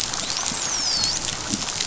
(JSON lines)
{"label": "biophony, dolphin", "recorder": "SoundTrap 500"}